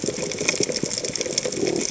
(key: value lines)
label: biophony
recorder: HydroMoth